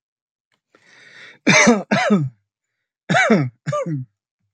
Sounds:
Cough